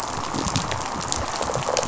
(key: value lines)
label: biophony, rattle response
recorder: SoundTrap 500